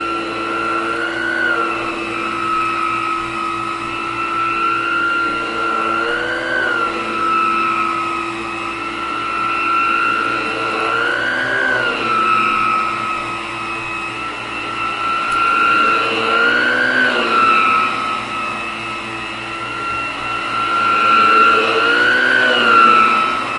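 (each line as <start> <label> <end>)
0.0 A carpet is being vacuumed. 23.6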